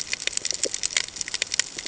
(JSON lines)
{"label": "ambient", "recorder": "HydroMoth"}